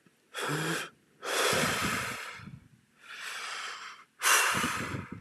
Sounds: Sigh